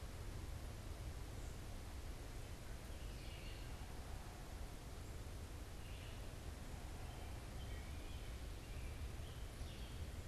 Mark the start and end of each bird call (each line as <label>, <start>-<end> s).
Wood Thrush (Hylocichla mustelina), 0.0-6.3 s
American Robin (Turdus migratorius), 6.8-10.2 s